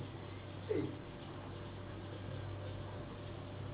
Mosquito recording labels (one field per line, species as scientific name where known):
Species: Anopheles gambiae s.s.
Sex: female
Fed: unfed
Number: one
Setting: insect culture